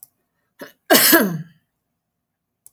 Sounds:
Throat clearing